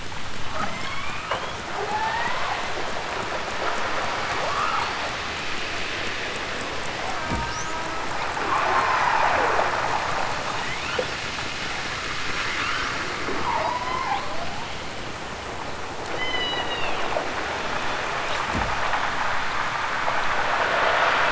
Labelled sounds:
0.4	2.7	killer whale, southern Alaska resident, 0.28 to 8.0 kHz
4.4	5.0	killer whale, southern Alaska resident, 0.64 to 2.9 kHz
8.5	9.4	killer whale, southern Alaska resident, 0.46 to 6.8 kHz
10.5	11.3	killer whale, southern Alaska resident, 0.60 to 5.6 kHz
12.4	13.1	killer whale, southern Alaska resident, 0.69 to 6.9 kHz
13.4	14.3	killer whale, southern Alaska resident, 0.51 to 6.0 kHz
16.1	17.1	killer whale, southern Alaska resident, 1.3 to 6.4 kHz

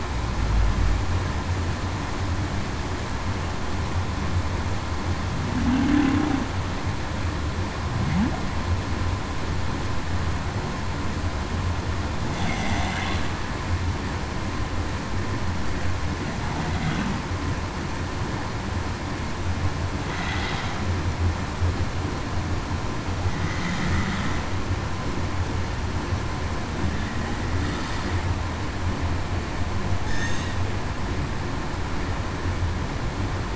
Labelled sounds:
5.6	6.3	humpback whale, 0.21 to 0.35 kHz
30.1	30.5	humpback whale, 1.7 to 1.9 kHz

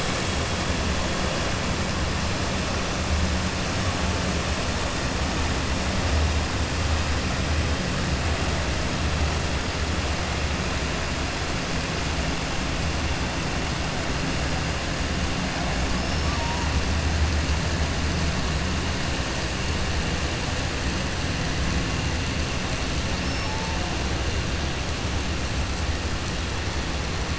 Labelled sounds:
15.9	16.4	killer whale, 5.1 to 5.5 kHz

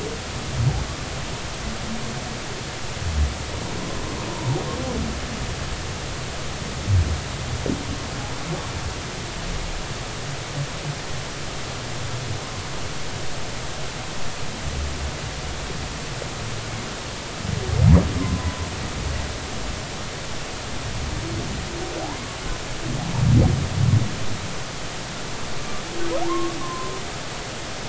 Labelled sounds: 4.3	4.6	humpback whale, 0.86 to 1.1 kHz
18.2	18.6	humpback whale, 0.96 to 1.1 kHz
22.0	22.4	humpback whale, 0.80 to 1.2 kHz
26.2	26.9	humpback whale, 0.80 to 1.2 kHz

